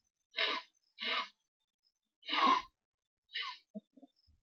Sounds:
Sniff